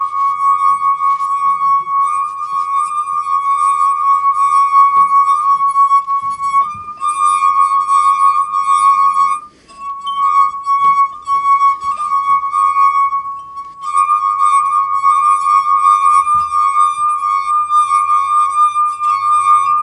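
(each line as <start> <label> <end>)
0.0 High-pitched glass-singing sounds. 19.8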